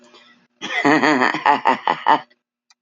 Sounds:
Laughter